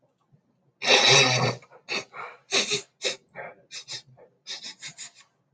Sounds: Sniff